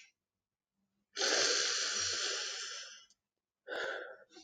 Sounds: Sniff